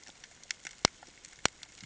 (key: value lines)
label: ambient
recorder: HydroMoth